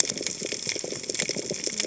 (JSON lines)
{"label": "biophony, cascading saw", "recorder": "HydroMoth"}